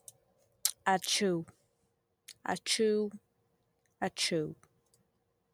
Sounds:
Sneeze